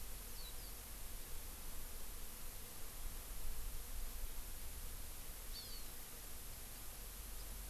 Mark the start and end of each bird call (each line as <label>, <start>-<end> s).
Warbling White-eye (Zosterops japonicus), 0.3-0.7 s
Hawaii Amakihi (Chlorodrepanis virens), 5.5-5.9 s
House Finch (Haemorhous mexicanus), 7.4-7.5 s